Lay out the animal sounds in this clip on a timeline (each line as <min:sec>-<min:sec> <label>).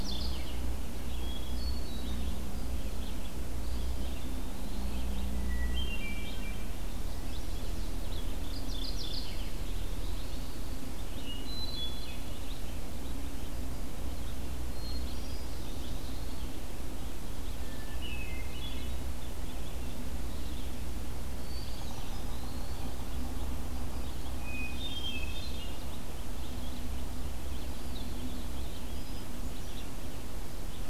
0:00.0-0:00.6 Mourning Warbler (Geothlypis philadelphia)
0:00.0-0:23.5 Red-eyed Vireo (Vireo olivaceus)
0:01.2-0:02.4 Hermit Thrush (Catharus guttatus)
0:03.4-0:05.1 Eastern Wood-Pewee (Contopus virens)
0:05.2-0:06.8 Hermit Thrush (Catharus guttatus)
0:06.9-0:07.9 Chestnut-sided Warbler (Setophaga pensylvanica)
0:08.0-0:09.5 Mourning Warbler (Geothlypis philadelphia)
0:09.1-0:10.7 Eastern Wood-Pewee (Contopus virens)
0:10.9-0:12.3 Hermit Thrush (Catharus guttatus)
0:14.6-0:15.7 Hermit Thrush (Catharus guttatus)
0:14.9-0:16.4 Eastern Wood-Pewee (Contopus virens)
0:17.6-0:19.0 Hermit Thrush (Catharus guttatus)
0:21.3-0:22.4 Hermit Thrush (Catharus guttatus)
0:21.4-0:22.8 Eastern Wood-Pewee (Contopus virens)
0:23.9-0:30.9 Red-eyed Vireo (Vireo olivaceus)
0:24.3-0:25.9 Hermit Thrush (Catharus guttatus)
0:27.3-0:28.4 Eastern Wood-Pewee (Contopus virens)
0:29.0-0:30.0 Hermit Thrush (Catharus guttatus)